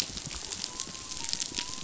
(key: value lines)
label: biophony
recorder: SoundTrap 500